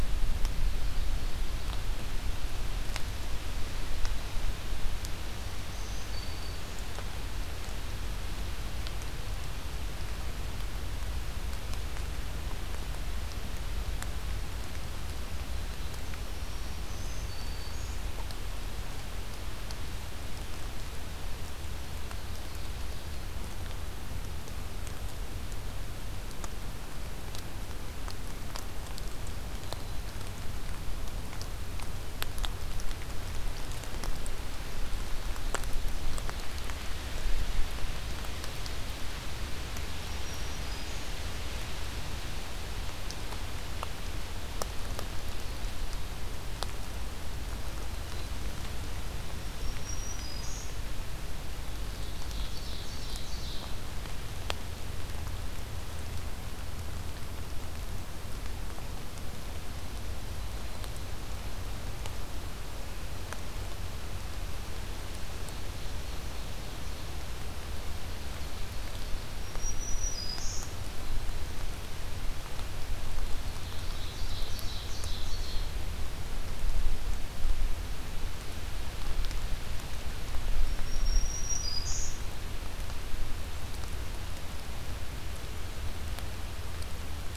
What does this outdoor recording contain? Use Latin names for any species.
Seiurus aurocapilla, Setophaga virens